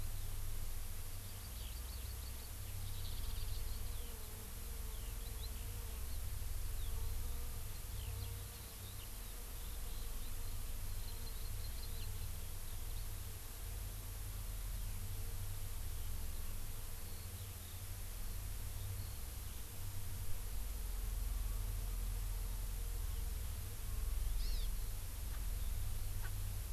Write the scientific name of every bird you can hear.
Alauda arvensis, Chlorodrepanis virens, Pternistis erckelii